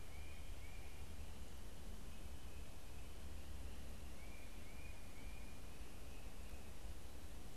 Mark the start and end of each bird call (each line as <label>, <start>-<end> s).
Tufted Titmouse (Baeolophus bicolor), 0.0-4.6 s